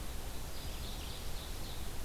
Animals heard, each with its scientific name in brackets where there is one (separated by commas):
Blue-headed Vireo (Vireo solitarius), Ovenbird (Seiurus aurocapilla)